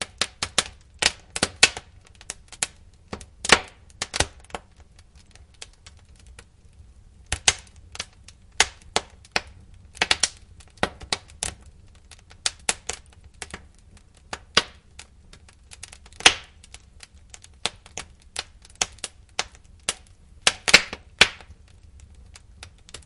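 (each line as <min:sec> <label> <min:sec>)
0:00.0 Wood crackling in a fire. 0:23.0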